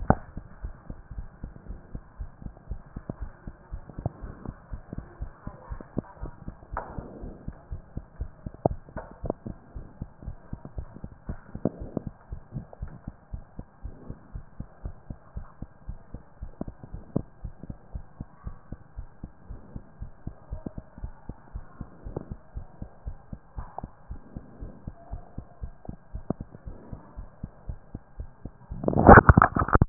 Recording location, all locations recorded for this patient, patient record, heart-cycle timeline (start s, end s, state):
mitral valve (MV)
aortic valve (AV)+pulmonary valve (PV)+tricuspid valve (TV)+tricuspid valve (TV)+mitral valve (MV)
#Age: Child
#Sex: Male
#Height: 111.0 cm
#Weight: 24.0 kg
#Pregnancy status: False
#Murmur: Absent
#Murmur locations: nan
#Most audible location: nan
#Systolic murmur timing: nan
#Systolic murmur shape: nan
#Systolic murmur grading: nan
#Systolic murmur pitch: nan
#Systolic murmur quality: nan
#Diastolic murmur timing: nan
#Diastolic murmur shape: nan
#Diastolic murmur grading: nan
#Diastolic murmur pitch: nan
#Diastolic murmur quality: nan
#Outcome: Normal
#Campaign: 2014 screening campaign
0.00	1.16	unannotated
1.16	1.28	S1
1.28	1.42	systole
1.42	1.52	S2
1.52	1.68	diastole
1.68	1.80	S1
1.80	1.92	systole
1.92	2.02	S2
2.02	2.18	diastole
2.18	2.30	S1
2.30	2.44	systole
2.44	2.52	S2
2.52	2.68	diastole
2.68	2.80	S1
2.80	2.94	systole
2.94	3.02	S2
3.02	3.20	diastole
3.20	3.32	S1
3.32	3.46	systole
3.46	3.54	S2
3.54	3.72	diastole
3.72	3.82	S1
3.82	3.98	systole
3.98	4.10	S2
4.10	4.22	diastole
4.22	4.34	S1
4.34	4.46	systole
4.46	4.56	S2
4.56	4.72	diastole
4.72	4.82	S1
4.82	4.96	systole
4.96	5.04	S2
5.04	5.20	diastole
5.20	5.32	S1
5.32	5.46	systole
5.46	5.54	S2
5.54	5.70	diastole
5.70	5.82	S1
5.82	5.96	systole
5.96	6.04	S2
6.04	6.22	diastole
6.22	6.32	S1
6.32	6.46	systole
6.46	6.56	S2
6.56	6.72	diastole
6.72	6.82	S1
6.82	6.96	systole
6.96	7.06	S2
7.06	7.22	diastole
7.22	7.34	S1
7.34	7.46	systole
7.46	7.56	S2
7.56	7.72	diastole
7.72	7.82	S1
7.82	7.94	systole
7.94	8.04	S2
8.04	8.20	diastole
8.20	8.30	S1
8.30	8.42	systole
8.42	8.50	S2
8.50	8.66	diastole
8.66	8.78	S1
8.78	8.94	systole
8.94	9.02	S2
9.02	9.22	diastole
9.22	9.34	S1
9.34	9.46	systole
9.46	9.56	S2
9.56	9.74	diastole
9.74	9.86	S1
9.86	10.00	systole
10.00	10.08	S2
10.08	10.26	diastole
10.26	10.36	S1
10.36	10.50	systole
10.50	10.60	S2
10.60	10.76	diastole
10.76	10.88	S1
10.88	11.02	systole
11.02	11.12	S2
11.12	11.28	diastole
11.28	11.38	S1
11.38	11.52	systole
11.52	11.62	S2
11.62	11.80	diastole
11.80	11.92	S1
11.92	12.04	systole
12.04	12.12	S2
12.12	12.30	diastole
12.30	12.42	S1
12.42	12.54	systole
12.54	12.64	S2
12.64	12.82	diastole
12.82	12.92	S1
12.92	13.06	systole
13.06	13.14	S2
13.14	13.32	diastole
13.32	13.42	S1
13.42	13.56	systole
13.56	13.66	S2
13.66	13.84	diastole
13.84	13.94	S1
13.94	14.08	systole
14.08	14.16	S2
14.16	14.34	diastole
14.34	14.44	S1
14.44	14.58	systole
14.58	14.68	S2
14.68	14.84	diastole
14.84	14.94	S1
14.94	15.08	systole
15.08	15.18	S2
15.18	15.36	diastole
15.36	15.46	S1
15.46	15.60	systole
15.60	15.68	S2
15.68	15.88	diastole
15.88	15.98	S1
15.98	16.12	systole
16.12	16.22	S2
16.22	16.40	diastole
16.40	16.50	S1
16.50	16.64	systole
16.64	16.74	S2
16.74	16.92	diastole
16.92	17.02	S1
17.02	17.14	systole
17.14	17.26	S2
17.26	17.44	diastole
17.44	17.54	S1
17.54	17.68	systole
17.68	17.76	S2
17.76	17.94	diastole
17.94	18.04	S1
18.04	18.18	systole
18.18	18.28	S2
18.28	18.44	diastole
18.44	18.56	S1
18.56	18.70	systole
18.70	18.78	S2
18.78	18.96	diastole
18.96	19.08	S1
19.08	19.22	systole
19.22	19.30	S2
19.30	19.48	diastole
19.48	19.60	S1
19.60	19.74	systole
19.74	19.82	S2
19.82	20.00	diastole
20.00	20.10	S1
20.10	20.26	systole
20.26	20.34	S2
20.34	20.50	diastole
20.50	20.62	S1
20.62	20.76	systole
20.76	20.84	S2
20.84	21.02	diastole
21.02	21.12	S1
21.12	21.28	systole
21.28	21.36	S2
21.36	21.54	diastole
21.54	21.64	S1
21.64	21.80	systole
21.80	21.88	S2
21.88	22.06	diastole
22.06	22.18	S1
22.18	22.30	systole
22.30	22.38	S2
22.38	22.54	diastole
22.54	22.66	S1
22.66	22.80	systole
22.80	22.88	S2
22.88	23.06	diastole
23.06	23.16	S1
23.16	23.30	systole
23.30	23.40	S2
23.40	23.56	diastole
23.56	23.68	S1
23.68	23.82	systole
23.82	23.90	S2
23.90	24.10	diastole
24.10	24.20	S1
24.20	24.34	systole
24.34	24.44	S2
24.44	24.60	diastole
24.60	24.72	S1
24.72	24.86	systole
24.86	24.94	S2
24.94	25.10	diastole
25.10	25.22	S1
25.22	25.36	systole
25.36	25.46	S2
25.46	25.62	diastole
25.62	25.72	S1
25.72	25.88	systole
25.88	25.96	S2
25.96	26.14	diastole
26.14	26.24	S1
26.24	26.38	systole
26.38	26.48	S2
26.48	26.66	diastole
26.66	26.76	S1
26.76	26.90	systole
26.90	27.00	S2
27.00	27.18	diastole
27.18	27.28	S1
27.28	27.42	systole
27.42	27.52	S2
27.52	27.68	diastole
27.68	27.78	S1
27.78	27.92	systole
27.92	28.02	S2
28.02	28.18	diastole
28.18	28.30	S1
28.30	28.42	systole
28.42	28.52	S2
28.52	28.70	diastole
28.70	29.89	unannotated